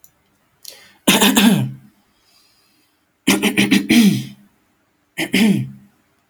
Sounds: Throat clearing